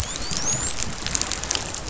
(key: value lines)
label: biophony, dolphin
recorder: SoundTrap 500